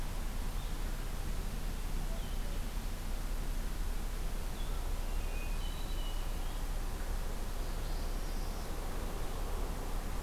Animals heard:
Hermit Thrush (Catharus guttatus)
Northern Parula (Setophaga americana)

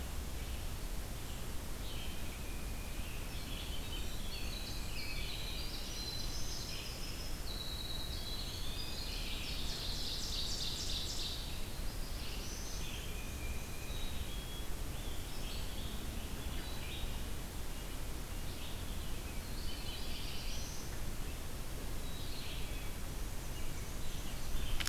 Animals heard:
Black-throated Blue Warbler (Setophaga caerulescens)
Red-eyed Vireo (Vireo olivaceus)
Tufted Titmouse (Baeolophus bicolor)
Ovenbird (Seiurus aurocapilla)
Eastern Wood-Pewee (Contopus virens)
Winter Wren (Troglodytes hiemalis)

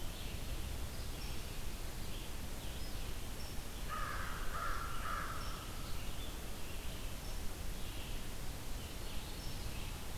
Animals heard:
Red-eyed Vireo (Vireo olivaceus)
American Crow (Corvus brachyrhynchos)

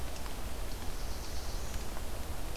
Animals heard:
Black-throated Blue Warbler (Setophaga caerulescens)

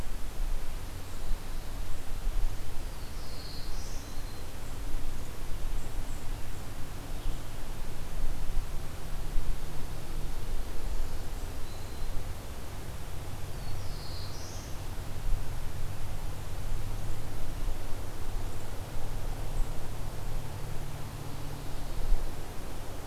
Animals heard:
Black-throated Green Warbler (Setophaga virens)
Black-throated Blue Warbler (Setophaga caerulescens)

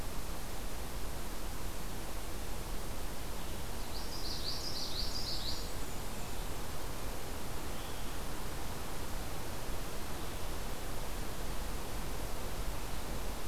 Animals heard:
Common Yellowthroat (Geothlypis trichas)
Blackburnian Warbler (Setophaga fusca)

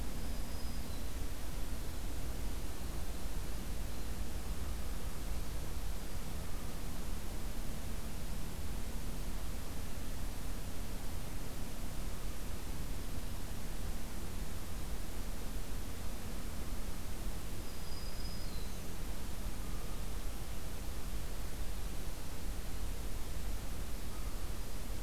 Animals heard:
Black-throated Green Warbler (Setophaga virens)

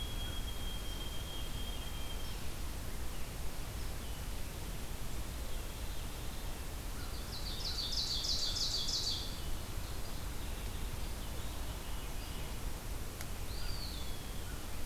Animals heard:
Ovenbird (Seiurus aurocapilla)
White-throated Sparrow (Zonotrichia albicollis)
Veery (Catharus fuscescens)
Eastern Wood-Pewee (Contopus virens)

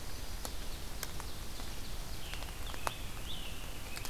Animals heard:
Ovenbird (Seiurus aurocapilla)
Scarlet Tanager (Piranga olivacea)

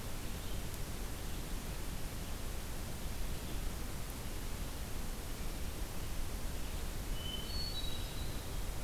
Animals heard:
Hermit Thrush (Catharus guttatus)

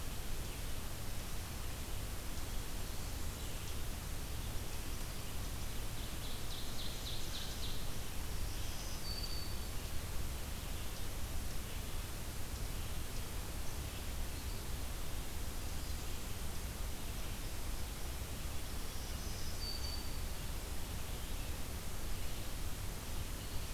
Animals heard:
Ovenbird (Seiurus aurocapilla)
Black-throated Green Warbler (Setophaga virens)

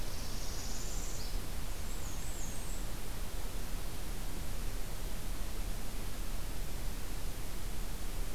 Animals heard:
Black-and-white Warbler (Mniotilta varia)
Northern Parula (Setophaga americana)

